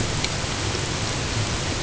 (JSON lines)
{"label": "ambient", "recorder": "HydroMoth"}